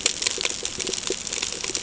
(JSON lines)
{"label": "ambient", "recorder": "HydroMoth"}